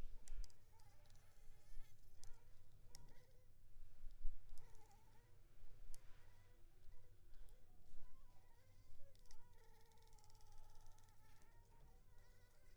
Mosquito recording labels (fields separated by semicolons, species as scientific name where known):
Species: Anopheles funestus s.l.; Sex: female; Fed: unfed; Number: one; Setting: cup